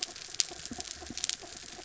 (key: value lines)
label: anthrophony, mechanical
recorder: SoundTrap 300